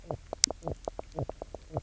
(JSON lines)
{"label": "biophony, knock croak", "recorder": "SoundTrap 300"}